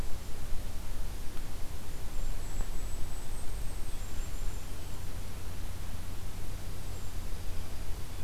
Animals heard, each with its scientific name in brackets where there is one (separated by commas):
Golden-crowned Kinglet (Regulus satrapa), Dark-eyed Junco (Junco hyemalis)